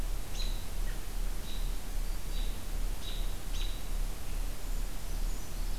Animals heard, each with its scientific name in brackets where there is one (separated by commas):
Brown Creeper (Certhia americana), American Robin (Turdus migratorius)